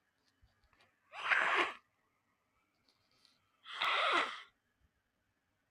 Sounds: Sniff